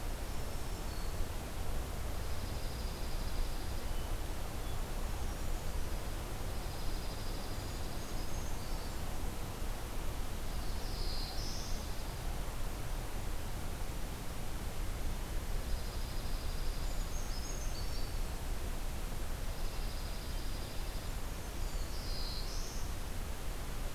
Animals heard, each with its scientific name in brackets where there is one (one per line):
Black-throated Green Warbler (Setophaga virens)
Brown Creeper (Certhia americana)
Dark-eyed Junco (Junco hyemalis)
Black-throated Blue Warbler (Setophaga caerulescens)